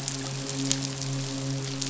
{"label": "biophony, midshipman", "recorder": "SoundTrap 500"}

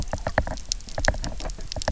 {"label": "biophony, knock", "recorder": "SoundTrap 300"}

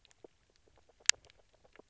{"label": "biophony, grazing", "recorder": "SoundTrap 300"}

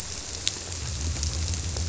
{"label": "biophony", "recorder": "SoundTrap 300"}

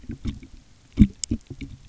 {"label": "geophony, waves", "recorder": "SoundTrap 300"}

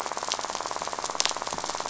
{"label": "biophony, rattle", "recorder": "SoundTrap 500"}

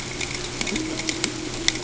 {"label": "ambient", "recorder": "HydroMoth"}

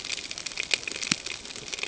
{"label": "ambient", "recorder": "HydroMoth"}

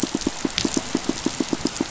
{"label": "biophony, pulse", "recorder": "SoundTrap 500"}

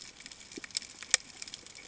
{"label": "ambient", "recorder": "HydroMoth"}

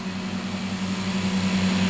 {"label": "anthrophony, boat engine", "recorder": "SoundTrap 500"}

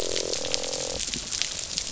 {"label": "biophony, croak", "recorder": "SoundTrap 500"}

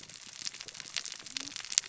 {"label": "biophony, cascading saw", "recorder": "SoundTrap 600 or HydroMoth"}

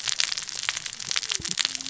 {"label": "biophony, cascading saw", "recorder": "SoundTrap 600 or HydroMoth"}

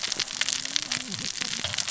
{"label": "biophony, cascading saw", "recorder": "SoundTrap 600 or HydroMoth"}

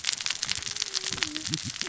{"label": "biophony, cascading saw", "recorder": "SoundTrap 600 or HydroMoth"}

